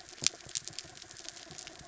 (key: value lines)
label: anthrophony, mechanical
recorder: SoundTrap 300